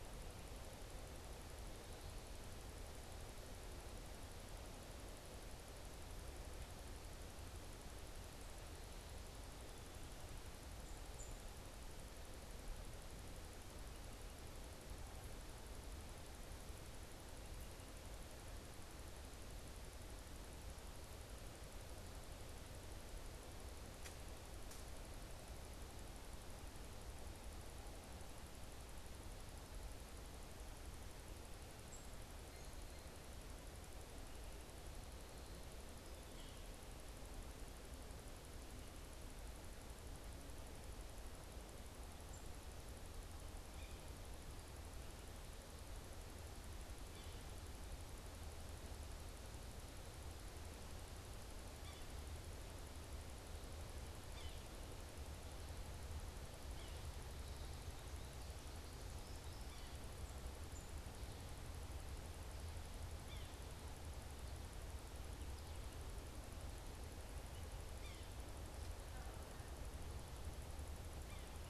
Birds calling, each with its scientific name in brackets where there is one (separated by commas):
unidentified bird, Yellow-bellied Sapsucker (Sphyrapicus varius)